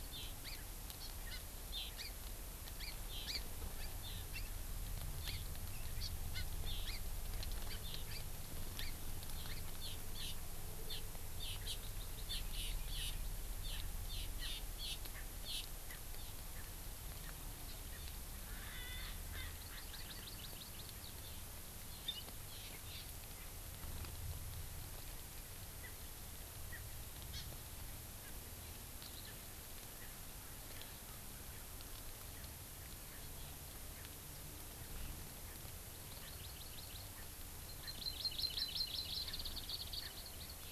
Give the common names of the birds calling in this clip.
Hawaii Amakihi, Erckel's Francolin